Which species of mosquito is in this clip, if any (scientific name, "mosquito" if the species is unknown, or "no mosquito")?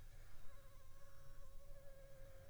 Anopheles funestus s.s.